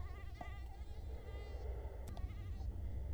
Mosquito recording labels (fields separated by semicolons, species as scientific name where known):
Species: Culex quinquefasciatus; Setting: cup